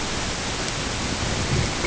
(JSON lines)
{"label": "ambient", "recorder": "HydroMoth"}